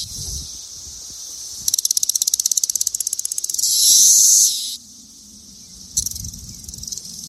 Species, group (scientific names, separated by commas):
Magicicada cassini, Cicadidae